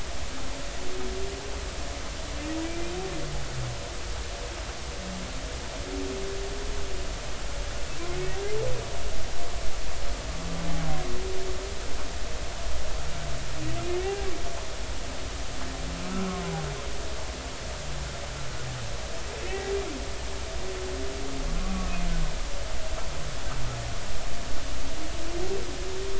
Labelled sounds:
2.7	2.9	humpback whale, 2.3 to 2.5 kHz
14.0	14.3	humpback whale, 0.80 to 0.86 kHz
16.0	16.4	humpback whale, 1.2 to 1.4 kHz
19.5	19.7	humpback whale, 1.8 to 2.0 kHz

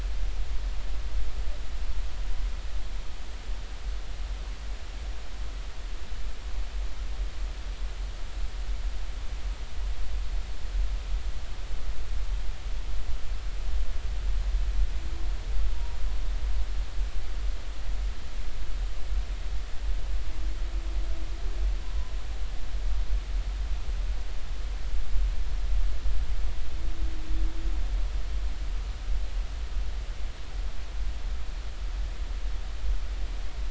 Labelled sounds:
15.7	16.0	humpback whale, 0.90 to 0.99 kHz

